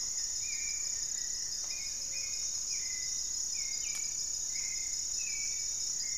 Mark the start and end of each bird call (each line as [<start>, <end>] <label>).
[0.00, 2.48] Goeldi's Antbird (Akletos goeldii)
[0.00, 6.18] Gray-fronted Dove (Leptotila rufaxilla)
[0.00, 6.18] Hauxwell's Thrush (Turdus hauxwelli)
[2.68, 4.68] Black-faced Antthrush (Formicarius analis)
[3.58, 6.18] Goeldi's Antbird (Akletos goeldii)